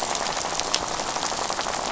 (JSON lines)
{"label": "biophony, rattle", "recorder": "SoundTrap 500"}